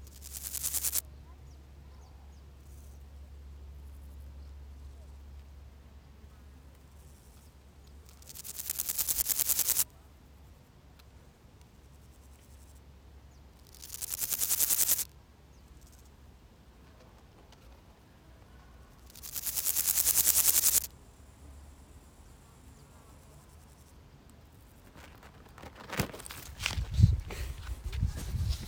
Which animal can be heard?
Pseudochorthippus parallelus, an orthopteran